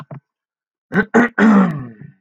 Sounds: Throat clearing